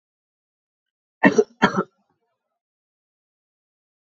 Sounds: Cough